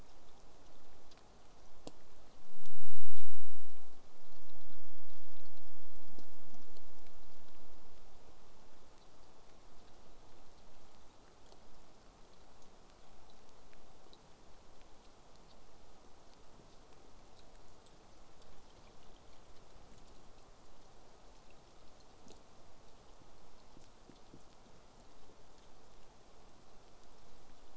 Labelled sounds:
19.6	20.7	killer whale, southern resident, J pod, 5.3 to 8.0 kHz

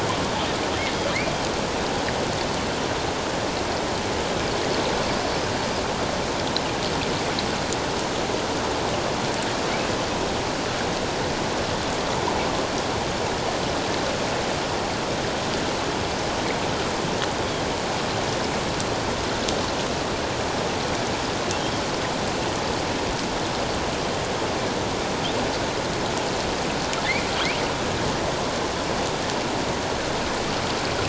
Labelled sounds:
27.0	27.3	Pacific white-sided dolphin, 1.9 to 2.5 kHz

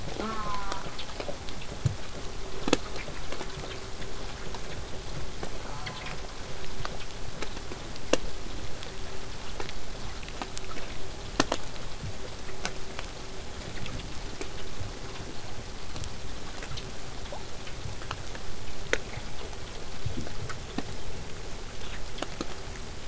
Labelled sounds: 0.2	0.9	killer whale, southern resident, J pod, call S04, 0.15 to 4.6 kHz
5.6	6.2	killer whale, southern resident, J pod, call S04, 0.19 to 1.8 kHz

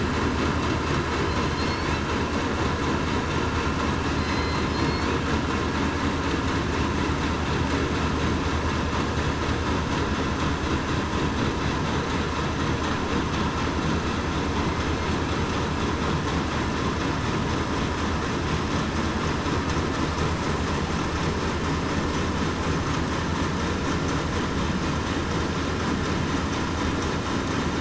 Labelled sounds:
4.2	5.1	killer whale, southern resident, 2.0 to 4.5 kHz

